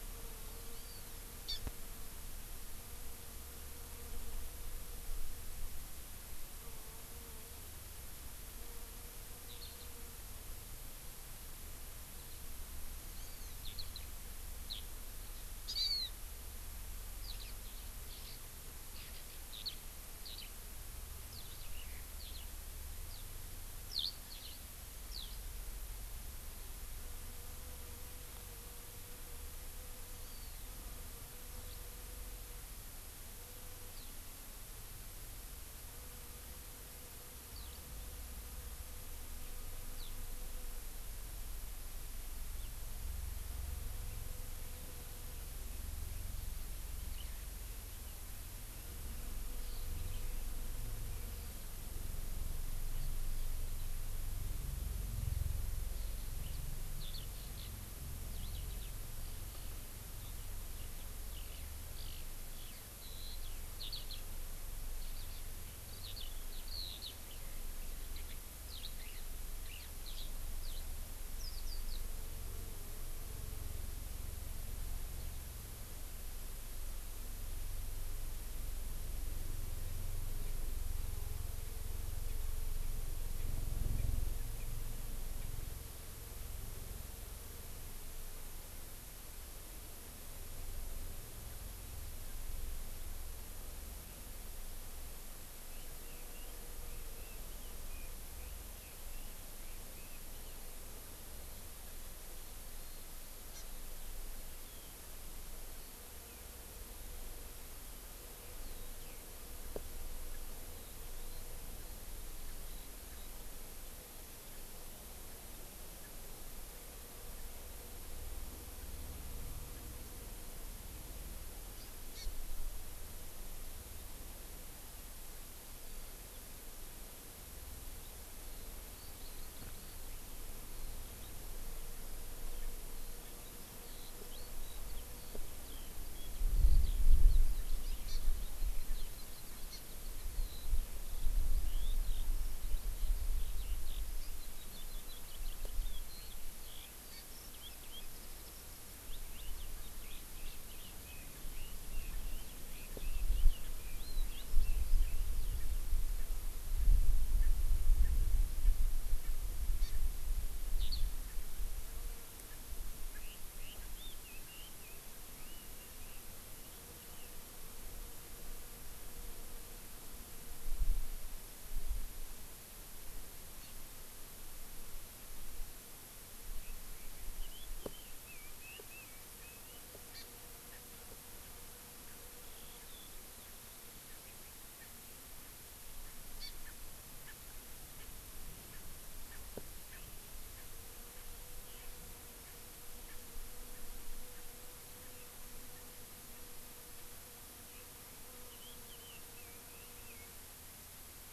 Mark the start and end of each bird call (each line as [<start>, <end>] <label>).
[0.73, 1.63] Hawaii Amakihi (Chlorodrepanis virens)
[9.43, 9.93] Eurasian Skylark (Alauda arvensis)
[13.13, 13.63] Hawaii Amakihi (Chlorodrepanis virens)
[13.63, 14.03] Eurasian Skylark (Alauda arvensis)
[14.63, 14.83] Eurasian Skylark (Alauda arvensis)
[15.73, 16.13] Hawaii Amakihi (Chlorodrepanis virens)
[17.23, 18.33] Eurasian Skylark (Alauda arvensis)
[18.93, 19.23] Eurasian Skylark (Alauda arvensis)
[19.53, 19.73] Eurasian Skylark (Alauda arvensis)
[20.23, 20.53] Eurasian Skylark (Alauda arvensis)
[21.23, 21.73] Eurasian Skylark (Alauda arvensis)
[22.23, 22.43] Eurasian Skylark (Alauda arvensis)
[23.03, 23.23] Eurasian Skylark (Alauda arvensis)
[23.93, 24.63] Eurasian Skylark (Alauda arvensis)
[25.13, 25.33] Eurasian Skylark (Alauda arvensis)
[30.13, 30.73] Hawaii Amakihi (Chlorodrepanis virens)
[31.63, 31.83] Eurasian Skylark (Alauda arvensis)
[33.93, 34.13] Eurasian Skylark (Alauda arvensis)
[37.53, 37.83] Eurasian Skylark (Alauda arvensis)
[39.93, 40.13] Eurasian Skylark (Alauda arvensis)
[47.13, 47.43] Eurasian Skylark (Alauda arvensis)
[49.63, 50.43] Eurasian Skylark (Alauda arvensis)
[56.93, 57.73] Eurasian Skylark (Alauda arvensis)
[58.33, 58.93] Eurasian Skylark (Alauda arvensis)
[60.73, 70.33] Eurasian Skylark (Alauda arvensis)
[70.63, 70.83] Eurasian Skylark (Alauda arvensis)
[71.33, 72.03] Eurasian Skylark (Alauda arvensis)
[95.63, 100.63] Red-billed Leiothrix (Leiothrix lutea)
[103.53, 103.63] Hawaii Amakihi (Chlorodrepanis virens)
[104.63, 104.93] Eurasian Skylark (Alauda arvensis)
[108.63, 109.23] Eurasian Skylark (Alauda arvensis)
[110.63, 111.43] Eurasian Skylark (Alauda arvensis)
[112.63, 113.33] Eurasian Skylark (Alauda arvensis)
[122.13, 122.33] Hawaii Amakihi (Chlorodrepanis virens)
[128.03, 155.73] Eurasian Skylark (Alauda arvensis)
[138.03, 138.23] Hawaii Amakihi (Chlorodrepanis virens)
[139.73, 139.83] Hawaii Amakihi (Chlorodrepanis virens)
[150.03, 154.93] Red-billed Leiothrix (Leiothrix lutea)
[157.43, 157.53] Erckel's Francolin (Pternistis erckelii)
[158.03, 158.13] Erckel's Francolin (Pternistis erckelii)
[159.83, 159.93] Hawaii Amakihi (Chlorodrepanis virens)
[160.73, 161.03] Eurasian Skylark (Alauda arvensis)
[163.13, 167.33] Red-billed Leiothrix (Leiothrix lutea)
[177.33, 179.83] Red-billed Leiothrix (Leiothrix lutea)
[180.13, 180.23] Hawaii Amakihi (Chlorodrepanis virens)
[186.33, 186.53] Hawaii Amakihi (Chlorodrepanis virens)
[186.63, 186.73] Erckel's Francolin (Pternistis erckelii)
[187.23, 187.33] Erckel's Francolin (Pternistis erckelii)
[187.93, 188.03] Erckel's Francolin (Pternistis erckelii)
[188.73, 188.83] Erckel's Francolin (Pternistis erckelii)
[189.23, 189.43] Erckel's Francolin (Pternistis erckelii)
[189.93, 190.03] Erckel's Francolin (Pternistis erckelii)
[190.53, 190.63] Erckel's Francolin (Pternistis erckelii)
[193.03, 193.23] Erckel's Francolin (Pternistis erckelii)
[194.33, 194.43] Erckel's Francolin (Pternistis erckelii)
[198.43, 200.33] Red-billed Leiothrix (Leiothrix lutea)